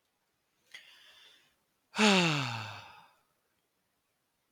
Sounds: Sigh